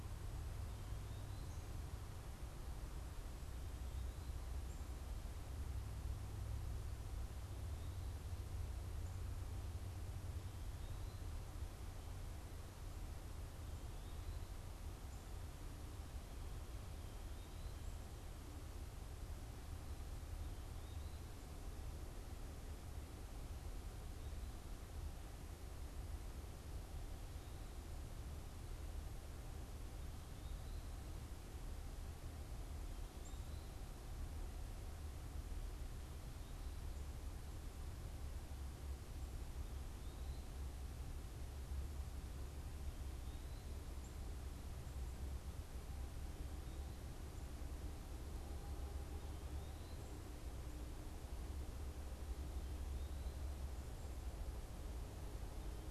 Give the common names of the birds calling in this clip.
unidentified bird